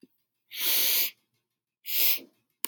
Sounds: Sniff